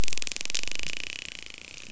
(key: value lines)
label: biophony, dolphin
recorder: SoundTrap 500